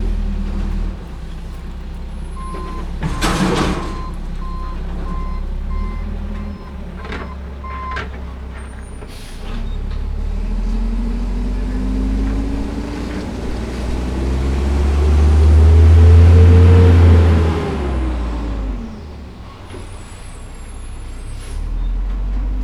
Is there a utility vehicle going in reverse?
yes